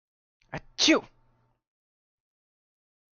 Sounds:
Sneeze